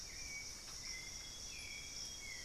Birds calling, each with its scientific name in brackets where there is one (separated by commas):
White-necked Thrush (Turdus albicollis), Amazonian Grosbeak (Cyanoloxia rothschildii)